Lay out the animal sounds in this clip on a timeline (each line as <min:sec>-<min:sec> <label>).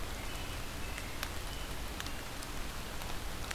0:00.0-0:01.8 American Robin (Turdus migratorius)